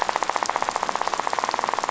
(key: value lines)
label: biophony, rattle
recorder: SoundTrap 500